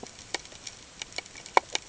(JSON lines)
{"label": "ambient", "recorder": "HydroMoth"}